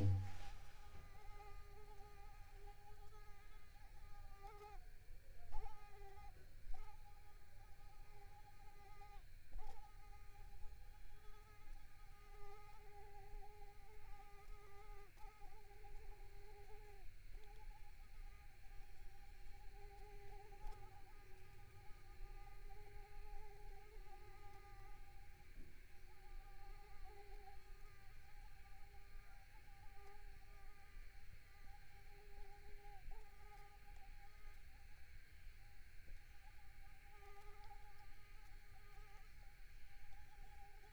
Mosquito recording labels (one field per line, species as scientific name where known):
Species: Mansonia africanus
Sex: female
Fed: unfed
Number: one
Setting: cup